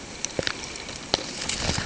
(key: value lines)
label: ambient
recorder: HydroMoth